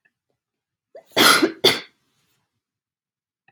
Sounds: Cough